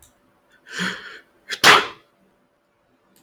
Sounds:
Sneeze